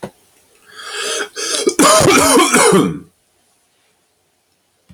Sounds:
Cough